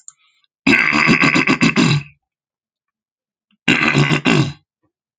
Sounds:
Throat clearing